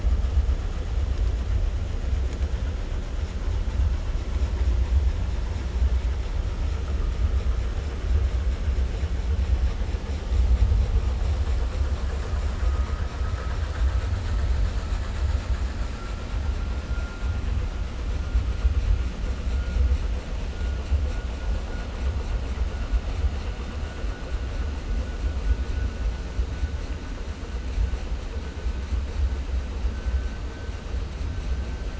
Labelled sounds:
13.1	14.1	killer whale, 0.55 to 2.1 kHz

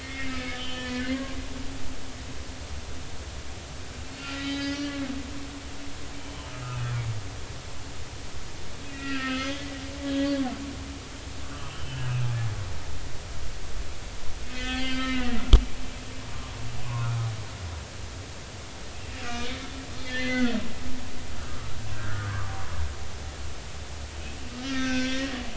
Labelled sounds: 0.0	1.3	humpback whale, 1.2 to 3.4 kHz
4.2	4.9	humpback whale, 1.3 to 5.1 kHz
8.8	9.6	humpback whale, 1.2 to 3.5 kHz
10.0	10.3	humpback whale, 1.6 to 3.4 kHz
11.7	12.1	humpback whale, 2.8 to 3.2 kHz
14.5	15.4	humpback whale, 1.5 to 4.7 kHz
16.8	17.2	humpback whale, 0.93 to 1.5 kHz
19.2	20.6	humpback whale, 1.3 to 4.2 kHz
21.9	22.5	humpback whale, 0.96 to 1.9 kHz
24.7	25.3	humpback whale, 1.2 to 5.9 kHz

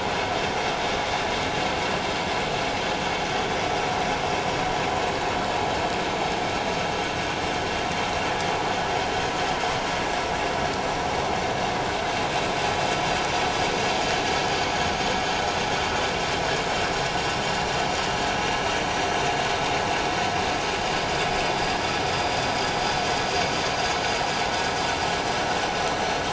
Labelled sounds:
20.8	21.1	vessel noise, 4.7 to 4.9 kHz

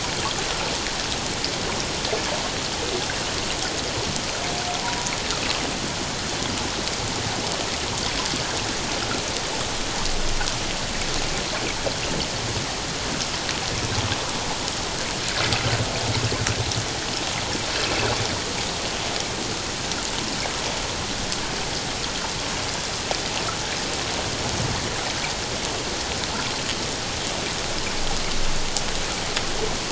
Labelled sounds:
12.0	12.3	water noise, 2.7 to 3.2 kHz

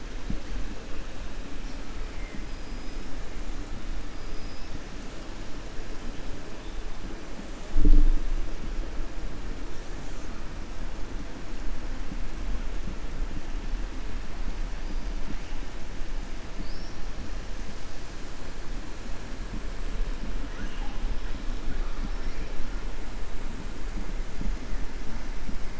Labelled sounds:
4.2	4.7	killer whale, 4.7 to 5.5 kHz

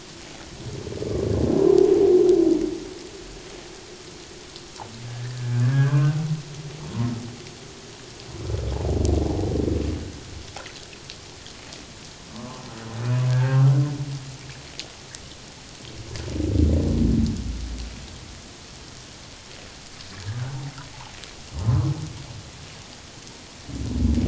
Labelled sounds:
5.1	6.2	humpback whale, 1.4 to 1.9 kHz
12.3	12.7	humpback whale, 0.94 to 1.3 kHz
13.3	13.6	humpback whale, 1.4 to 1.7 kHz
21.6	21.8	humpback whale, 0.97 to 1.1 kHz

